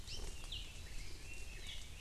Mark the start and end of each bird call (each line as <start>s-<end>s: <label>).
0.0s-0.3s: Hawaii Creeper (Loxops mana)
0.1s-2.0s: Red-billed Leiothrix (Leiothrix lutea)
0.4s-0.8s: Apapane (Himatione sanguinea)
1.5s-1.9s: Apapane (Himatione sanguinea)